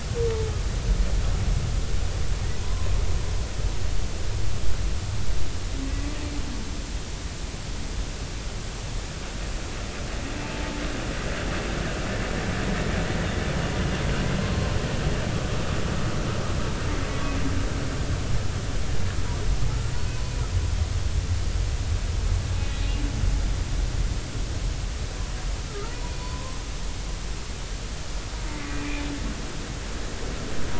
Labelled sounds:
2.6	2.9	humpback whale, 0.93 to 1.1 kHz
14.4	14.7	humpback whale, 1.0 to 1.1 kHz
22.7	22.9	humpback whale, 3.8 to 3.9 kHz
25.7	26.6	humpback whale, 0.93 to 1.4 kHz
28.5	29.0	humpback whale, 1.9 to 2.5 kHz

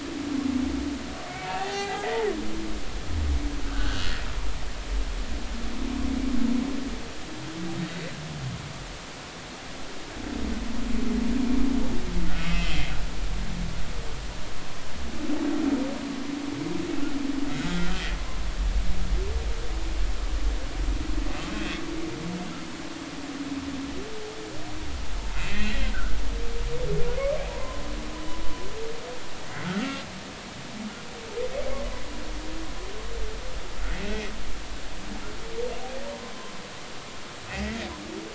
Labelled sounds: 1.5	2.2	humpback whale, 0.80 to 4.5 kHz
3.7	4.0	humpback whale, 1.3 to 1.7 kHz
12.4	12.9	humpback whale, 2.4 to 3.3 kHz
17.6	18.4	humpback whale, 0.96 to 2.0 kHz
21.5	21.8	humpback whale, 2.4 to 3.6 kHz
25.5	26.2	humpback whale, 1.2 to 2.8 kHz
27.5	27.8	humpback whale, 0.83 to 1.1 kHz
34.0	34.3	humpback whale, 2.4 to 2.7 kHz
37.5	37.8	humpback whale, 1.8 to 2.2 kHz

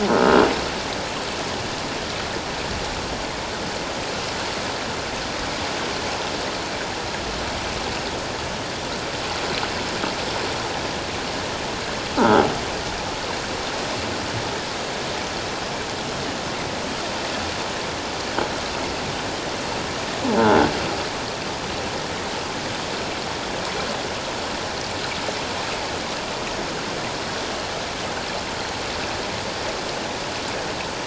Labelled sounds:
0.2	0.5	croaking sound likely from a nearby submerged object, 2.8 to 2.9 kHz
20.4	20.7	croaking sound likely from a nearby submerged object, 1.3 to 1.6 kHz

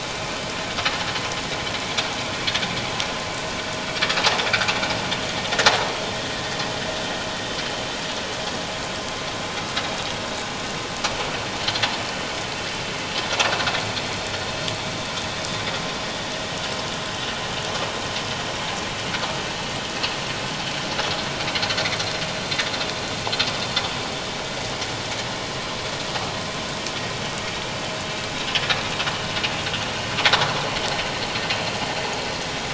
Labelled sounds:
12.0	12.3	vessel noise, 2.9 to 3.1 kHz

